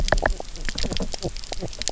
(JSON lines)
{"label": "biophony, knock croak", "recorder": "SoundTrap 300"}